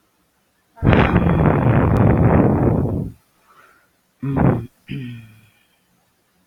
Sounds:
Sigh